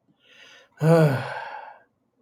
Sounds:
Sigh